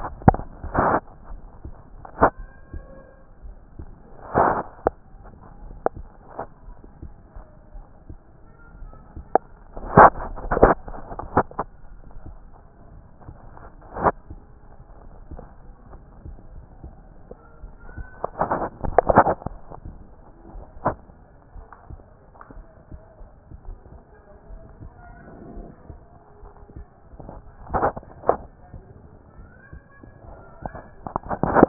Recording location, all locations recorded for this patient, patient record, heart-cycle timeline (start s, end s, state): aortic valve (AV)
aortic valve (AV)+pulmonary valve (PV)+tricuspid valve (TV)+mitral valve (MV)
#Age: Adolescent
#Sex: Male
#Height: 155.0 cm
#Weight: 47.1 kg
#Pregnancy status: False
#Murmur: Absent
#Murmur locations: nan
#Most audible location: nan
#Systolic murmur timing: nan
#Systolic murmur shape: nan
#Systolic murmur grading: nan
#Systolic murmur pitch: nan
#Systolic murmur quality: nan
#Diastolic murmur timing: nan
#Diastolic murmur shape: nan
#Diastolic murmur grading: nan
#Diastolic murmur pitch: nan
#Diastolic murmur quality: nan
#Outcome: Abnormal
#Campaign: 2014 screening campaign
0.00	21.33	unannotated
21.33	21.56	diastole
21.56	21.66	S1
21.66	21.90	systole
21.90	22.00	S2
22.00	22.56	diastole
22.56	22.66	S1
22.66	22.90	systole
22.90	23.00	S2
23.00	23.66	diastole
23.66	23.78	S1
23.78	23.92	systole
23.92	24.00	S2
24.00	24.50	diastole
24.50	24.62	S1
24.62	24.80	systole
24.80	24.92	S2
24.92	25.54	diastole
25.54	25.66	S1
25.66	25.88	systole
25.88	25.98	S2
25.98	26.42	diastole
26.42	26.54	S1
26.54	26.76	systole
26.76	26.86	S2
26.86	27.20	diastole
27.20	31.68	unannotated